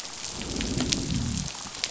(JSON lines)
{"label": "biophony, growl", "recorder": "SoundTrap 500"}